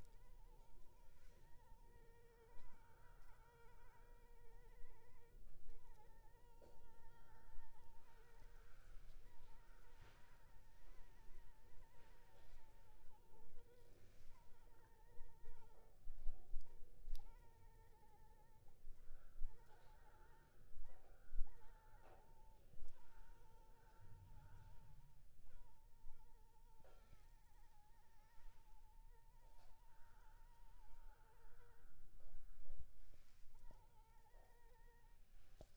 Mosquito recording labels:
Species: Anopheles arabiensis; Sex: female; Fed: unfed; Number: one; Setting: cup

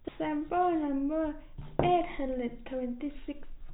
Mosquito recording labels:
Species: no mosquito; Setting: cup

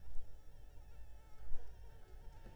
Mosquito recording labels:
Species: Anopheles arabiensis; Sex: female; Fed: unfed; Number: one; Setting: cup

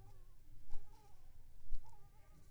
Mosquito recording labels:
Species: Anopheles squamosus; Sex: female; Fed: unfed; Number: one; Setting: cup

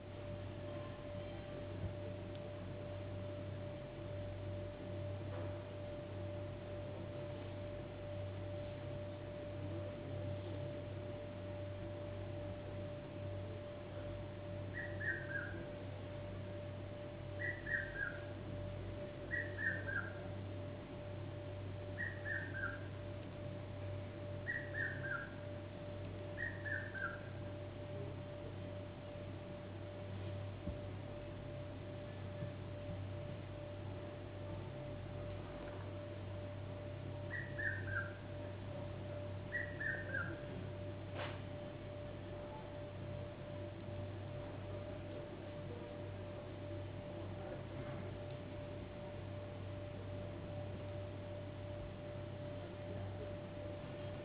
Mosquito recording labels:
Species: no mosquito; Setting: insect culture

